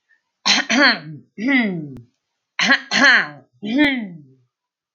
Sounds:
Throat clearing